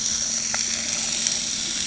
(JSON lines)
{"label": "anthrophony, boat engine", "recorder": "HydroMoth"}